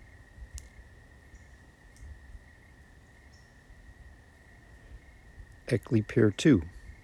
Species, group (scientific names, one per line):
Oecanthus rileyi
Orthoptera